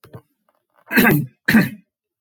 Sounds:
Throat clearing